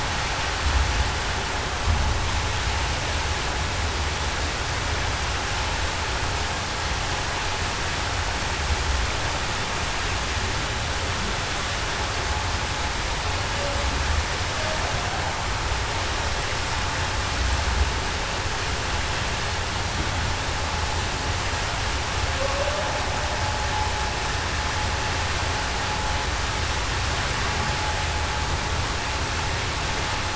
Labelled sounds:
22.4	22.8	humpback whale, 0.49 to 0.63 kHz

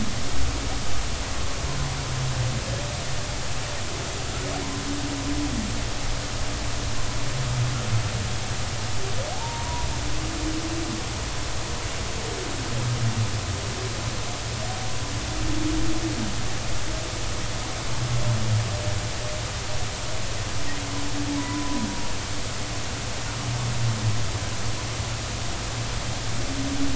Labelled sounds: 9.3	9.9	humpback whale, 0.80 to 1.0 kHz
21.4	21.9	humpback whale, 0.93 to 1.1 kHz

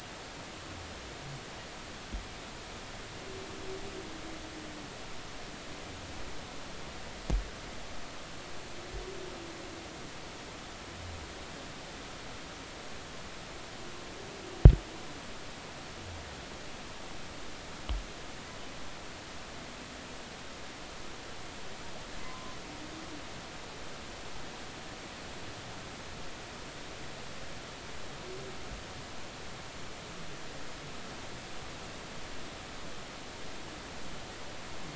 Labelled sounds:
22.2	22.6	humpback whale, 0.96 to 1.2 kHz

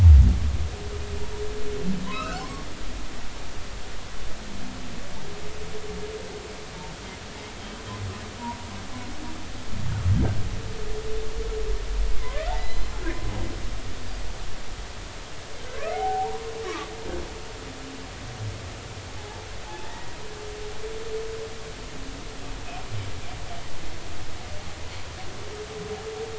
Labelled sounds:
2.1	2.6	humpback whale, 0.96 to 3.1 kHz
12.2	12.9	humpback whale, 2.0 to 4.2 kHz
15.9	16.9	humpback whale, 0.80 to 1.3 kHz
19.8	20.2	humpback whale, 1.7 to 2.0 kHz

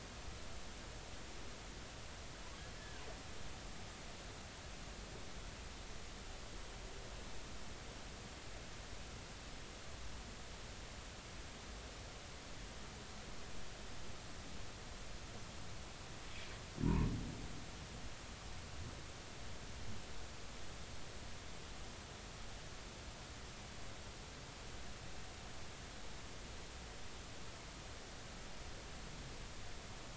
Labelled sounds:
2.8	3.0	humpback whale, 1.5 to 1.8 kHz

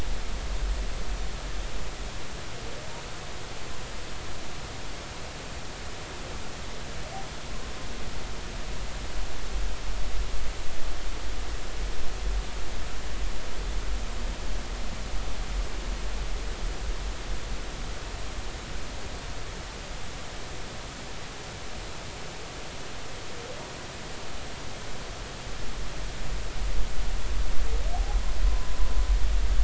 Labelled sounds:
28.4	28.8	humpback whale, 0.96 to 1.1 kHz

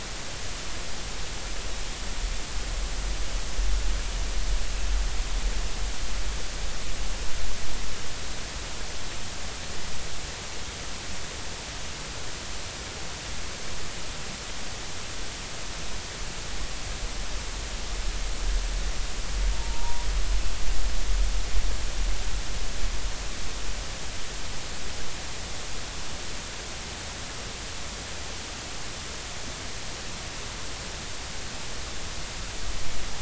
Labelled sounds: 19.5	20.1	humpback whale, 0.83 to 0.99 kHz

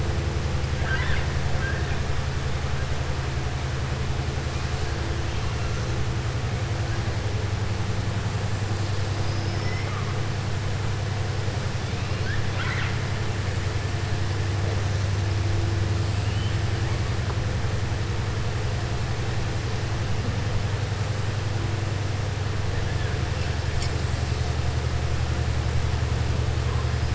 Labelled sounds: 0.7	1.9	killer whale, southern resident, 0.60 to 4.0 kHz
9.4	10.1	killer whale, southern resident, 0.57 to 5.5 kHz
12.4	13.0	killer whale, southern resident, 1.0 to 4.1 kHz

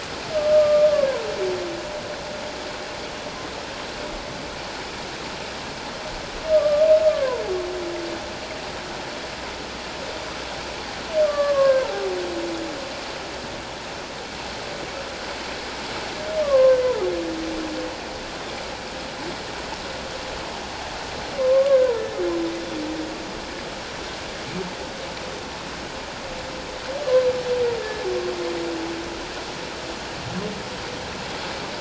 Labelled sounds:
0.3	0.9	humpback whale, 1.2 to 1.3 kHz
6.5	7.4	humpback whale, 0.88 to 1.3 kHz
11.2	11.9	humpback whale, 0.88 to 1.7 kHz
16.4	16.8	humpback whale, 0.97 to 1.2 kHz
21.4	22.1	humpback whale, 1.0 to 1.7 kHz
27.8	28.1	humpback whale, 1.7 to 1.8 kHz

